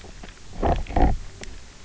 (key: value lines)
label: biophony, low growl
recorder: SoundTrap 300